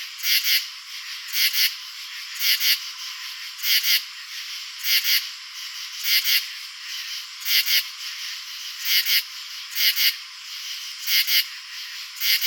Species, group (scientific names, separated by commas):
Pterophylla camellifolia, Orthoptera